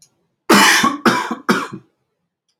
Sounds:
Cough